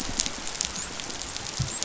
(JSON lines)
{"label": "biophony, dolphin", "recorder": "SoundTrap 500"}